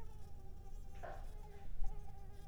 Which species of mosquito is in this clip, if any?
Mansonia uniformis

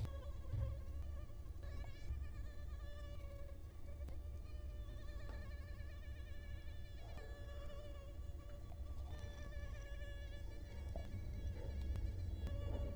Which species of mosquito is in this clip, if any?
Culex quinquefasciatus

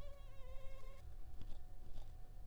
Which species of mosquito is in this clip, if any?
Culex pipiens complex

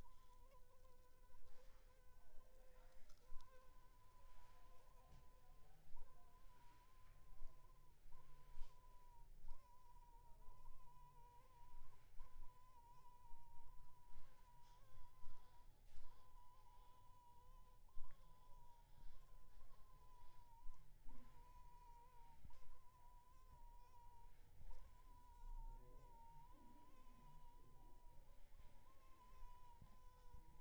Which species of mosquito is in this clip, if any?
Anopheles funestus s.s.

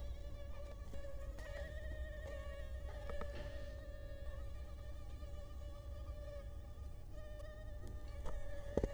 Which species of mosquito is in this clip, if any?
Culex quinquefasciatus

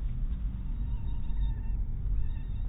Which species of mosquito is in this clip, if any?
mosquito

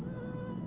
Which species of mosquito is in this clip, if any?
Aedes albopictus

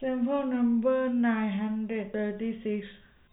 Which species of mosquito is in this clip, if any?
no mosquito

